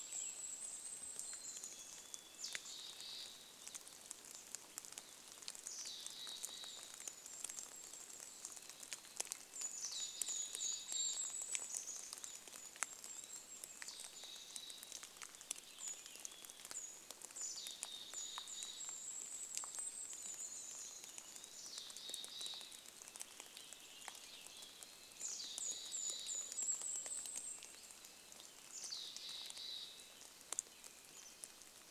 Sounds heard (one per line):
rain
Mountain Chickadee call
Red-breasted Nuthatch song
Golden-crowned Kinglet song
Purple Finch song